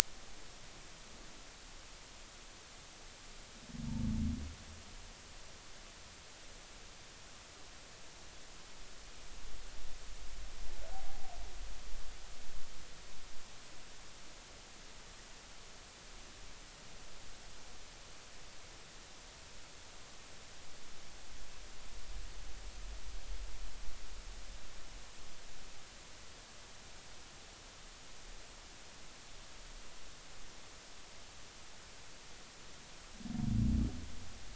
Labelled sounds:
10.9	11.2	humpback whale, 0.80 to 0.83 kHz

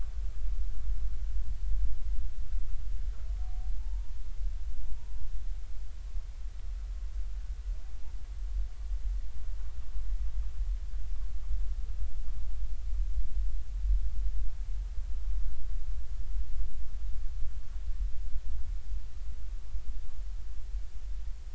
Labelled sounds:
3.7	4.1	humpback whale, 0.83 to 0.99 kHz
4.8	5.1	humpback whale, 0.90 to 1.0 kHz

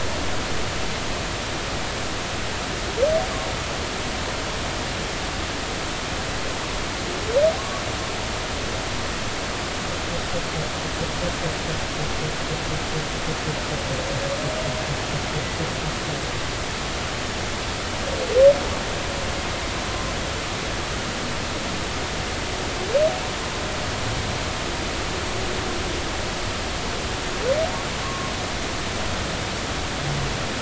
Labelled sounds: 28.0	28.3	humpback whale, 1.0 to 1.2 kHz

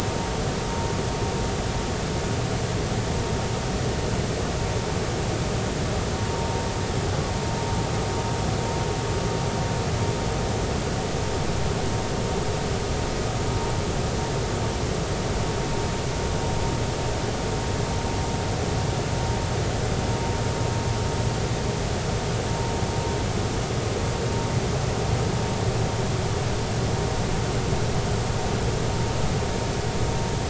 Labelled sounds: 6.3	6.5	vessel noise, 0.90 to 0.99 kHz

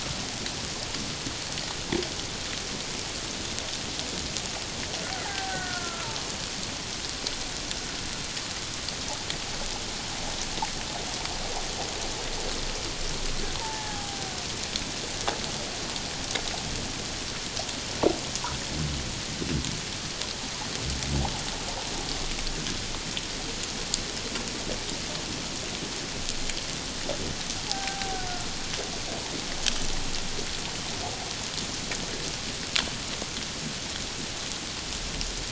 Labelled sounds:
5.2	6.1	killer whale, Bigg's (transient), 0.78 to 1.7 kHz
13.6	14.2	killer whale, Bigg's (transient), 0.78 to 1.8 kHz
27.7	28.5	killer whale, Bigg's (transient), 0.78 to 1.6 kHz

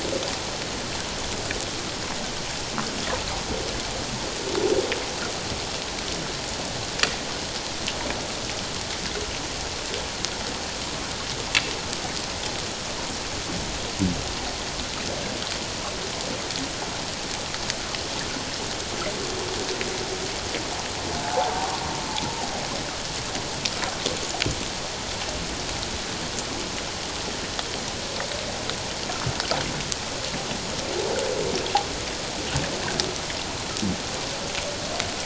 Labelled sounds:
21.2	21.7	humpback whale, 0.78 to 1.0 kHz

